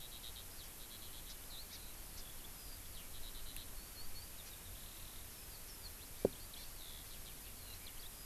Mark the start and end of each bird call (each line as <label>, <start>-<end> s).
Eurasian Skylark (Alauda arvensis), 0.0-8.3 s
Hawaii Amakihi (Chlorodrepanis virens), 1.2-1.4 s
Hawaii Amakihi (Chlorodrepanis virens), 1.7-1.8 s
Hawaii Amakihi (Chlorodrepanis virens), 2.1-2.3 s
Hawaii Amakihi (Chlorodrepanis virens), 6.5-6.7 s